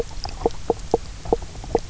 {"label": "biophony, knock croak", "recorder": "SoundTrap 300"}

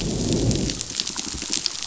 {"label": "biophony, growl", "recorder": "SoundTrap 500"}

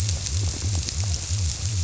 {"label": "biophony", "recorder": "SoundTrap 300"}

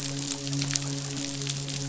{"label": "biophony, midshipman", "recorder": "SoundTrap 500"}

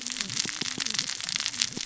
{"label": "biophony, cascading saw", "recorder": "SoundTrap 600 or HydroMoth"}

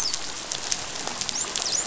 {"label": "biophony, dolphin", "recorder": "SoundTrap 500"}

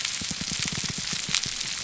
{"label": "biophony, grouper groan", "recorder": "SoundTrap 300"}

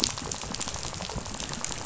{"label": "biophony, rattle", "recorder": "SoundTrap 500"}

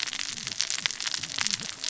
{"label": "biophony, cascading saw", "recorder": "SoundTrap 600 or HydroMoth"}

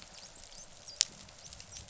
{"label": "biophony, dolphin", "recorder": "SoundTrap 500"}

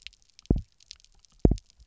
{"label": "biophony, double pulse", "recorder": "SoundTrap 300"}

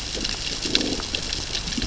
{"label": "biophony, growl", "recorder": "SoundTrap 600 or HydroMoth"}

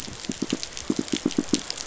{"label": "biophony, pulse", "recorder": "SoundTrap 500"}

